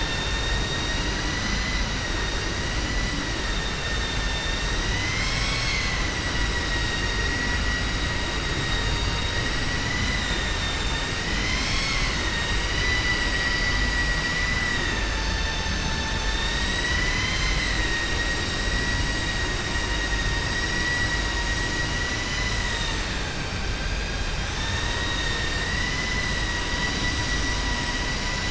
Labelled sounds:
9.9	11.1	vessel noise, 2.0 to 4.6 kHz
12.2	13.8	vessel noise, 0.99 to 6.0 kHz

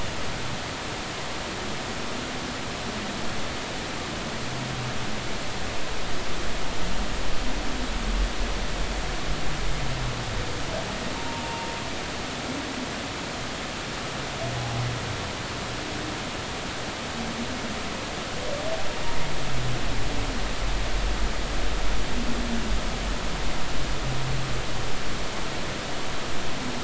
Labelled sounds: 11.2	11.7	humpback whale, 0.86 to 0.99 kHz

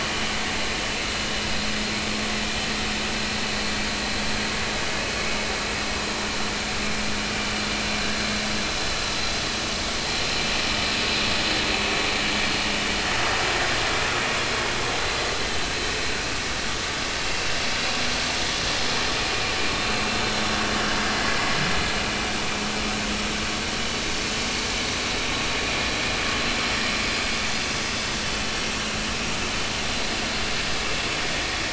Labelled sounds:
20.2	20.6	vessel noise, 5.5 to 5.6 kHz

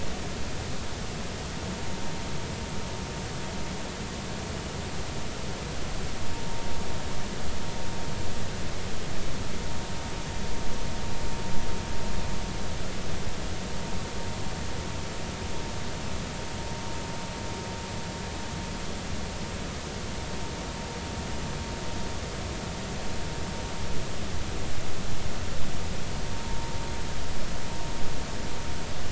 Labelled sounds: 26.4	26.7	vessel noise, 0.86 to 1.0 kHz

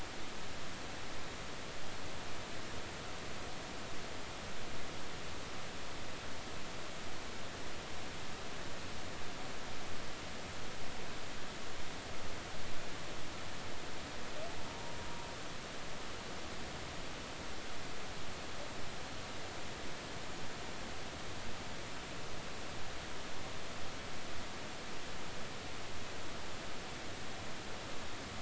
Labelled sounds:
14.7	14.9	humpback whale, 0.90 to 0.99 kHz

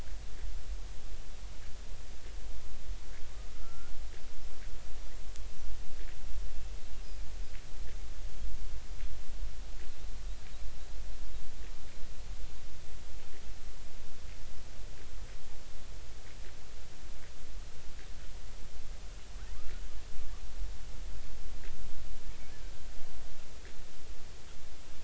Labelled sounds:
3.5	3.9	killer whale, Bigg's (transient), 1.2 to 1.5 kHz

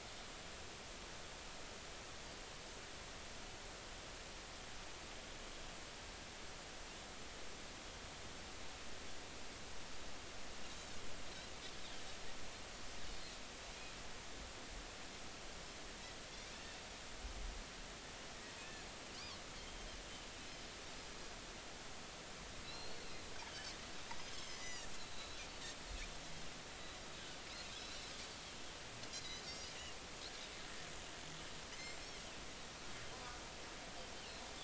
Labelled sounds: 18.6	18.8	Pacific white-sided dolphin, 2.4 to 2.7 kHz
22.6	23.1	Pacific white-sided dolphin, 2.6 to 4.4 kHz
24.3	24.9	Pacific white-sided dolphin, 1.9 to 7.1 kHz
27.8	28.0	Pacific white-sided dolphin, 3.8 to 4.1 kHz
29.1	29.7	Pacific white-sided dolphin, 4.5 to 6.0 kHz

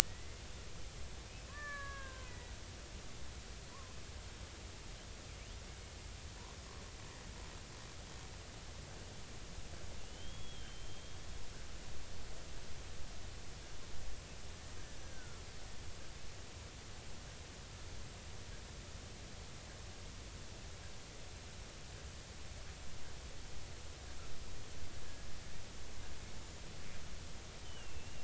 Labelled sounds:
0.0	0.4	killer whale, Bigg's (transient), 1.8 to 2.2 kHz
1.5	2.5	killer whale, Bigg's (transient), 0.93 to 2.4 kHz
10.0	11.2	killer whale, Bigg's (transient), 2.7 to 3.4 kHz
15.0	15.5	killer whale, Bigg's (transient), 1.3 to 1.7 kHz
27.6	28.2	killer whale, Bigg's (transient), 2.5 to 3.2 kHz

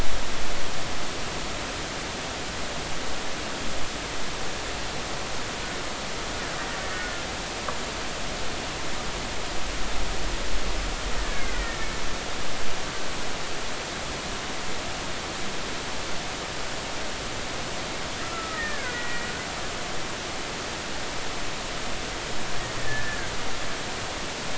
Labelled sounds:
6.8	7.1	killer whale, Bigg's (transient), 1.7 to 1.9 kHz
11.2	11.8	killer whale, Bigg's (transient), 1.6 to 2.3 kHz
18.2	19.3	killer whale, Bigg's (transient), 1.2 to 2.2 kHz
22.8	23.3	killer whale, Bigg's (transient), 1.5 to 1.9 kHz

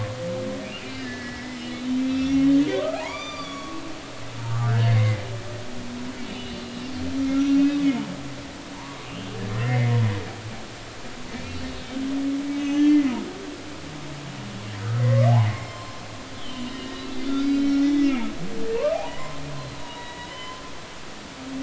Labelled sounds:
0.8	1.6	humpback whale, 1.6 to 2.5 kHz
2.0	3.8	humpback whale, 0.80 to 7.2 kHz
4.4	5.0	humpback whale, 1.1 to 1.8 kHz
5.9	6.6	humpback whale, 2.0 to 3.0 kHz
7.4	7.6	humpback whale, 5.7 to 5.9 kHz
8.8	9.9	humpback whale, 0.86 to 3.3 kHz
11.5	11.8	humpback whale, 4.4 to 4.6 kHz
12.5	13.0	humpback whale, 1.7 to 6.4 kHz
15.0	16.0	humpback whale, 0.99 to 7.5 kHz
16.4	16.9	humpback whale, 2.8 to 3.2 kHz
17.3	18.3	humpback whale, 1.9 to 6.4 kHz
19.8	20.6	humpback whale, 0.80 to 3.9 kHz

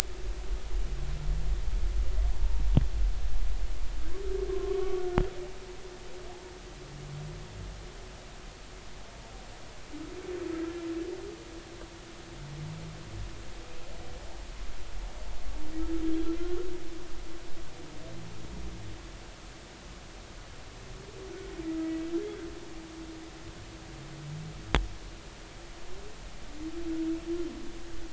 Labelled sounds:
4.5	5.0	humpback whale, 0.99 to 1.2 kHz
16.0	16.3	humpback whale, 3.2 to 3.4 kHz

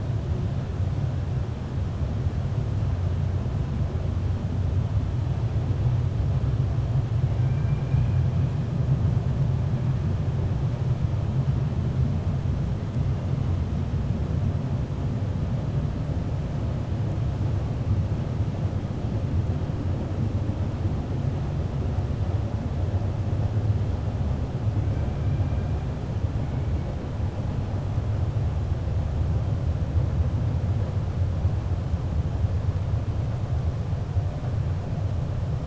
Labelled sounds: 7.4	8.2	killer whale, 1.6 to 2.6 kHz

